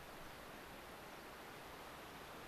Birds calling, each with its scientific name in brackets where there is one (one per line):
unidentified bird